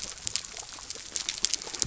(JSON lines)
{"label": "biophony", "recorder": "SoundTrap 300"}